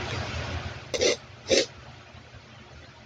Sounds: Sniff